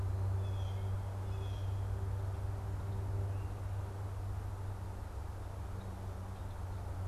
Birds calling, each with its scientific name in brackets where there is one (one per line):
Blue Jay (Cyanocitta cristata)